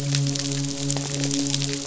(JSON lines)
{"label": "biophony, midshipman", "recorder": "SoundTrap 500"}